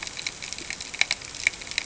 {"label": "ambient", "recorder": "HydroMoth"}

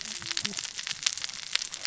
{"label": "biophony, cascading saw", "recorder": "SoundTrap 600 or HydroMoth"}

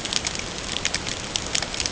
{"label": "ambient", "recorder": "HydroMoth"}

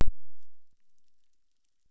{"label": "biophony, chorus", "recorder": "SoundTrap 600"}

